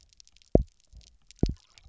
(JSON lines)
{"label": "biophony, double pulse", "recorder": "SoundTrap 300"}